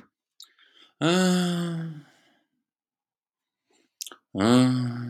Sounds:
Sigh